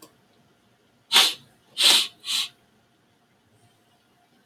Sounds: Sniff